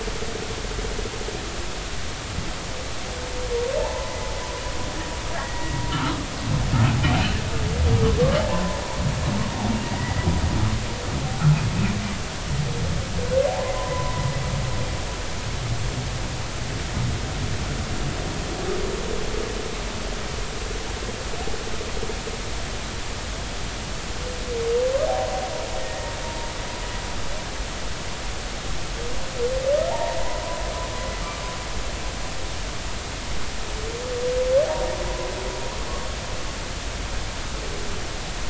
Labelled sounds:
3.8	4.1	humpback whale, 0.83 to 1.1 kHz
5.4	6.2	humpback whale, 1.1 to 2.0 kHz
8.4	8.8	humpback whale, 0.80 to 1.1 kHz
9.8	10.3	humpback whale, 1.8 to 2.0 kHz
13.5	14.3	humpback whale, 0.80 to 1.1 kHz
25.8	26.1	humpback whale, 1.8 to 2.0 kHz
29.9	30.2	humpback whale, 0.80 to 0.99 kHz

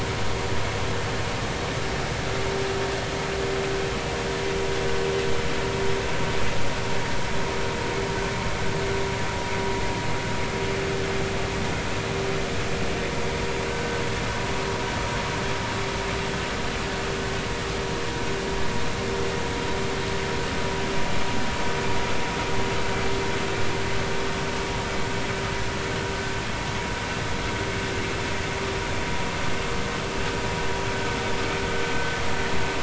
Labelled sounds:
13.7	14.0	vessel noise, 1.5 to 1.6 kHz

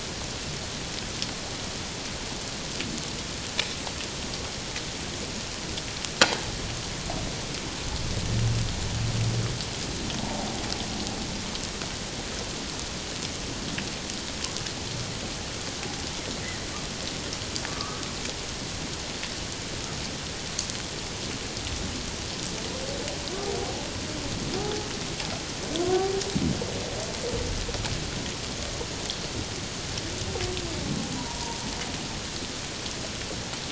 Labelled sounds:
10.2	10.6	humpback whale, 0.78 to 0.97 kHz
17.7	18.0	humpback whale, 1.1 to 1.3 kHz
24.6	24.9	humpback whale, 0.78 to 0.88 kHz
25.8	26.1	humpback whale, 1.0 to 1.2 kHz
31.1	31.6	humpback whale, 0.88 to 1.0 kHz

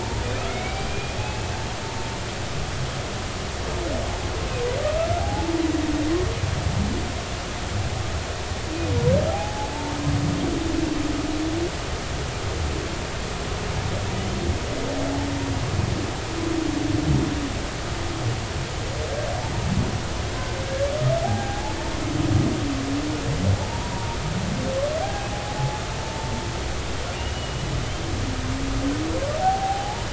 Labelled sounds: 0.0	1.2	humpback whale, 0.86 to 2.7 kHz
5.2	5.6	humpback whale, 0.80 to 0.99 kHz
9.3	10.0	humpback whale, 0.80 to 0.96 kHz
21.2	21.8	humpback whale, 0.80 to 0.99 kHz
23.6	24.2	humpback whale, 0.80 to 1.0 kHz
25.0	25.3	humpback whale, 0.80 to 0.86 kHz
25.6	26.3	humpback whale, 0.80 to 0.96 kHz
27.2	27.7	humpback whale, 2.7 to 3.0 kHz
29.4	30.1	humpback whale, 0.80 to 0.99 kHz

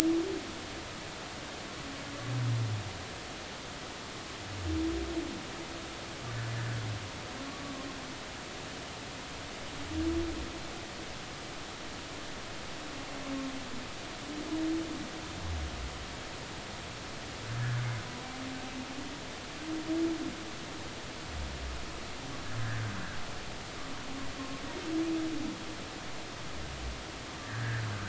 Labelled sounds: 27.4	27.9	humpback whale, 1.4 to 1.9 kHz

